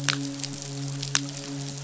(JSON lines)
{"label": "biophony, midshipman", "recorder": "SoundTrap 500"}